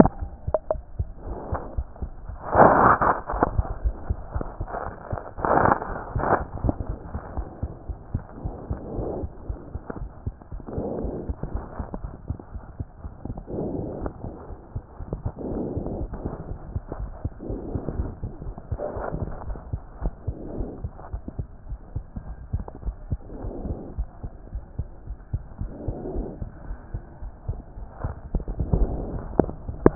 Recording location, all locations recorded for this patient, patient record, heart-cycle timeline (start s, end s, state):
aortic valve (AV)
aortic valve (AV)+mitral valve (MV)
#Age: Child
#Sex: Male
#Height: 93.0 cm
#Weight: 15.7 kg
#Pregnancy status: False
#Murmur: Absent
#Murmur locations: nan
#Most audible location: nan
#Systolic murmur timing: nan
#Systolic murmur shape: nan
#Systolic murmur grading: nan
#Systolic murmur pitch: nan
#Systolic murmur quality: nan
#Diastolic murmur timing: nan
#Diastolic murmur shape: nan
#Diastolic murmur grading: nan
#Diastolic murmur pitch: nan
#Diastolic murmur quality: nan
#Outcome: Normal
#Campaign: 2014 screening campaign
0.00	7.04	unannotated
7.04	7.10	systole
7.10	7.20	S2
7.20	7.34	diastole
7.34	7.46	S1
7.46	7.62	systole
7.62	7.72	S2
7.72	7.88	diastole
7.88	7.98	S1
7.98	8.10	systole
8.10	8.24	S2
8.24	8.42	diastole
8.42	8.56	S1
8.56	8.68	systole
8.68	8.78	S2
8.78	8.94	diastole
8.94	9.08	S1
9.08	9.20	systole
9.20	9.32	S2
9.32	9.48	diastole
9.48	9.58	S1
9.58	9.72	systole
9.72	9.82	S2
9.82	10.00	diastole
10.00	10.10	S1
10.10	10.26	systole
10.26	10.34	S2
10.34	10.52	diastole
10.52	10.60	S1
10.60	10.76	systole
10.76	10.86	S2
10.86	11.00	diastole
11.00	11.12	S1
11.12	11.26	systole
11.26	11.38	S2
11.38	11.52	diastole
11.52	11.64	S1
11.64	11.78	systole
11.78	11.88	S2
11.88	12.02	diastole
12.02	12.12	S1
12.12	12.26	systole
12.26	12.38	S2
12.38	12.56	diastole
12.56	12.62	S1
12.62	12.76	systole
12.76	12.86	S2
12.86	13.04	diastole
13.04	13.12	S1
13.12	13.26	systole
13.26	13.38	S2
13.38	13.54	diastole
13.54	13.70	S1
13.70	13.80	systole
13.80	13.92	S2
13.92	14.04	diastole
14.04	14.12	S1
14.12	14.24	systole
14.24	14.34	S2
14.34	14.52	diastole
14.52	14.58	S1
14.58	14.74	systole
14.74	14.82	S2
14.82	15.00	diastole
15.00	15.12	S1
15.12	15.24	systole
15.24	15.34	S2
15.34	15.50	diastole
15.50	15.66	S1
15.66	15.74	systole
15.74	15.84	S2
15.84	15.96	diastole
15.96	16.10	S1
16.10	16.22	systole
16.22	16.34	S2
16.34	16.48	diastole
16.48	16.58	S1
16.58	16.70	systole
16.70	16.82	S2
16.82	16.96	diastole
16.96	17.10	S1
17.10	17.22	systole
17.22	17.32	S2
17.32	17.50	diastole
17.50	17.62	S1
17.62	17.72	systole
17.72	17.82	S2
17.82	17.96	diastole
17.96	18.10	S1
18.10	18.24	systole
18.24	18.32	S2
18.32	18.46	diastole
18.46	18.54	S1
18.54	18.70	systole
18.70	18.80	S2
18.80	18.94	diastole
18.94	19.04	S1
19.04	19.14	systole
19.14	19.30	S2
19.30	19.46	diastole
19.46	19.60	S1
19.60	19.74	systole
19.74	19.84	S2
19.84	20.02	diastole
20.02	20.16	S1
20.16	20.26	systole
20.26	20.36	S2
20.36	20.54	diastole
20.54	20.68	S1
20.68	20.82	systole
20.82	20.92	S2
20.92	21.10	diastole
21.10	21.22	S1
21.22	21.40	systole
21.40	21.48	S2
21.48	21.68	diastole
21.68	21.78	S1
21.78	21.94	systole
21.94	22.04	S2
22.04	22.24	diastole
22.24	22.36	S1
22.36	22.52	systole
22.52	22.66	S2
22.66	22.84	diastole
22.84	22.98	S1
22.98	23.10	systole
23.10	23.20	S2
23.20	23.40	diastole
23.40	23.54	S1
23.54	23.66	systole
23.66	23.80	S2
23.80	23.96	diastole
23.96	24.06	S1
24.06	24.22	systole
24.22	24.32	S2
24.32	24.52	diastole
24.52	24.64	S1
24.64	24.80	systole
24.80	24.90	S2
24.90	25.08	diastole
25.08	25.18	S1
25.18	25.32	systole
25.32	25.42	S2
25.42	25.60	diastole
25.60	25.72	S1
25.72	25.86	systole
25.86	25.96	S2
25.96	26.14	diastole
26.14	26.28	S1
26.28	26.38	systole
26.38	26.48	S2
26.48	26.68	diastole
26.68	26.78	S1
26.78	26.92	systole
26.92	27.02	S2
27.02	27.22	diastole
27.22	27.32	S1
27.32	27.48	systole
27.48	27.60	S2
27.60	27.78	diastole
27.78	27.88	S1
27.88	28.02	systole
28.02	28.16	S2
28.16	29.95	unannotated